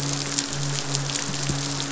{"label": "biophony, midshipman", "recorder": "SoundTrap 500"}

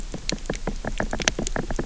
{"label": "biophony, knock", "recorder": "SoundTrap 300"}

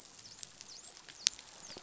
{"label": "biophony, dolphin", "recorder": "SoundTrap 500"}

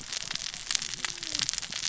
{"label": "biophony, cascading saw", "recorder": "SoundTrap 600 or HydroMoth"}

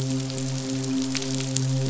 {"label": "biophony, midshipman", "recorder": "SoundTrap 500"}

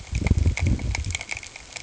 {"label": "ambient", "recorder": "HydroMoth"}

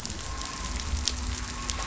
{"label": "anthrophony, boat engine", "recorder": "SoundTrap 500"}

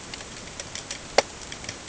{"label": "ambient", "recorder": "HydroMoth"}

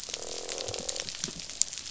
{"label": "biophony, croak", "recorder": "SoundTrap 500"}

